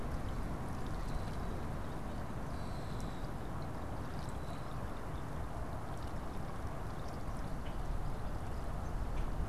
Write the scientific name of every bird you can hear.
Quiscalus quiscula